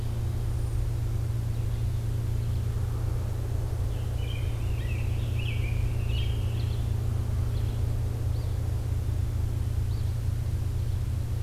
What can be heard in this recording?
American Robin, Eastern Phoebe